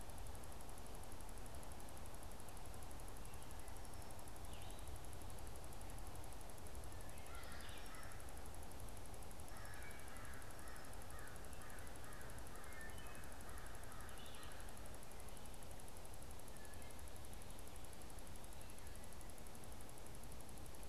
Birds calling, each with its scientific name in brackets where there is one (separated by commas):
American Crow (Corvus brachyrhynchos), Red-eyed Vireo (Vireo olivaceus)